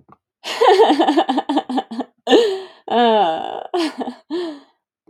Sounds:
Laughter